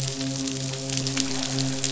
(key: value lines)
label: biophony, midshipman
recorder: SoundTrap 500